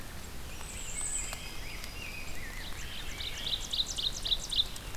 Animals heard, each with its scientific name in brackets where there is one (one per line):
Yellow-rumped Warbler (Setophaga coronata)
Rose-breasted Grosbeak (Pheucticus ludovicianus)
unknown mammal
Wood Thrush (Hylocichla mustelina)
Ovenbird (Seiurus aurocapilla)
Bay-breasted Warbler (Setophaga castanea)